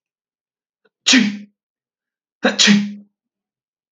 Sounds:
Sneeze